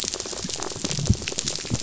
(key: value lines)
label: biophony, pulse
recorder: SoundTrap 500